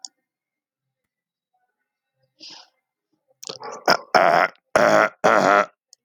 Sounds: Throat clearing